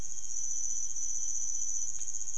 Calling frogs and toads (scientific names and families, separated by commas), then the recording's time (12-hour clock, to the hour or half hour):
none
3am